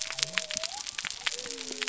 {"label": "biophony", "recorder": "SoundTrap 300"}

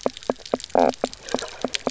{"label": "biophony, knock croak", "recorder": "SoundTrap 300"}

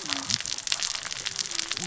{"label": "biophony, cascading saw", "recorder": "SoundTrap 600 or HydroMoth"}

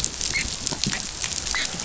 {"label": "biophony, dolphin", "recorder": "SoundTrap 500"}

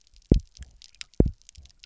{"label": "biophony, double pulse", "recorder": "SoundTrap 300"}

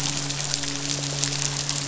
{"label": "biophony, midshipman", "recorder": "SoundTrap 500"}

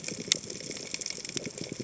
{"label": "biophony, chatter", "recorder": "HydroMoth"}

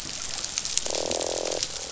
{"label": "biophony, croak", "recorder": "SoundTrap 500"}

